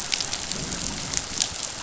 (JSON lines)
{"label": "biophony, growl", "recorder": "SoundTrap 500"}